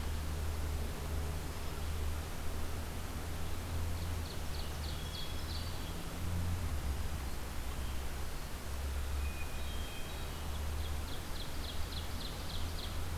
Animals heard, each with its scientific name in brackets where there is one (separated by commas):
Ovenbird (Seiurus aurocapilla), Hermit Thrush (Catharus guttatus)